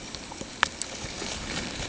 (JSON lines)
{"label": "ambient", "recorder": "HydroMoth"}